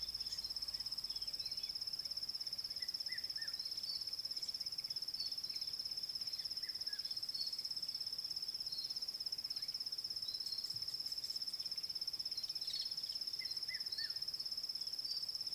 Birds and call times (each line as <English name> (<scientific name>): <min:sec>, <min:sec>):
Red-chested Cuckoo (Cuculus solitarius): 0:03.2, 0:13.7